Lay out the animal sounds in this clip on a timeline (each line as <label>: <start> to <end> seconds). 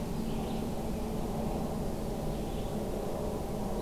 Red-eyed Vireo (Vireo olivaceus): 0.0 to 3.8 seconds